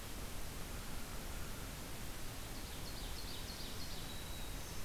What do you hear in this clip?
American Crow, Ovenbird, Black-throated Green Warbler